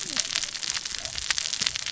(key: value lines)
label: biophony, cascading saw
recorder: SoundTrap 600 or HydroMoth